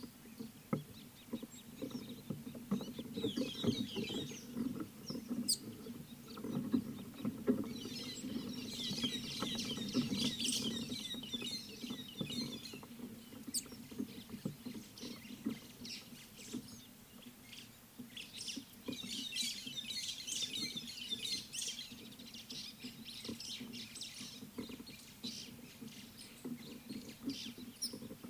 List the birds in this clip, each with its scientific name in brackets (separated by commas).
Red-headed Weaver (Anaplectes rubriceps), White-headed Buffalo-Weaver (Dinemellia dinemelli)